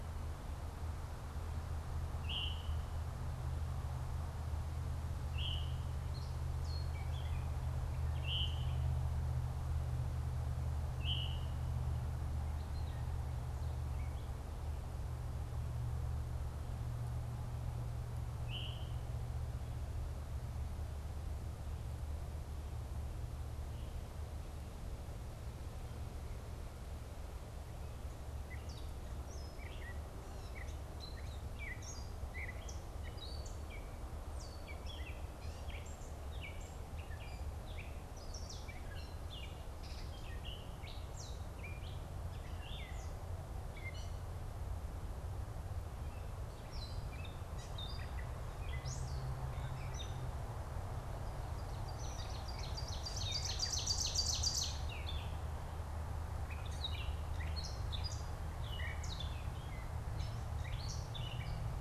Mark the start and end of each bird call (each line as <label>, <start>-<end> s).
Veery (Catharus fuscescens), 0.0-5.9 s
Gray Catbird (Dumetella carolinensis), 6.0-7.9 s
Veery (Catharus fuscescens), 8.1-11.6 s
Gray Catbird (Dumetella carolinensis), 12.4-14.5 s
Veery (Catharus fuscescens), 18.3-19.0 s
Gray Catbird (Dumetella carolinensis), 28.4-49.8 s
Ovenbird (Seiurus aurocapilla), 51.6-54.9 s
Gray Catbird (Dumetella carolinensis), 54.9-61.8 s